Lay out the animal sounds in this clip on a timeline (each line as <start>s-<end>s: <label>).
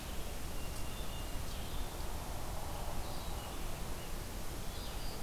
0.0s-5.2s: Blue-headed Vireo (Vireo solitarius)
0.6s-1.6s: Hermit Thrush (Catharus guttatus)